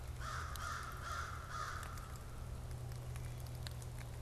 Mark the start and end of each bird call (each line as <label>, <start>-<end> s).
American Crow (Corvus brachyrhynchos), 0.0-2.6 s